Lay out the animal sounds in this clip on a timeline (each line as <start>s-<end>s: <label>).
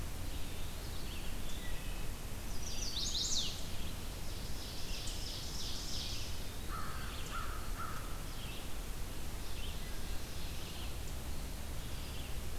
0.0s-1.4s: Red-eyed Vireo (Vireo olivaceus)
1.4s-2.1s: Wood Thrush (Hylocichla mustelina)
2.4s-3.6s: Chestnut-sided Warbler (Setophaga pensylvanica)
2.5s-12.4s: Red-eyed Vireo (Vireo olivaceus)
4.1s-6.4s: Ovenbird (Seiurus aurocapilla)
6.6s-8.1s: American Crow (Corvus brachyrhynchos)
9.2s-10.9s: Ovenbird (Seiurus aurocapilla)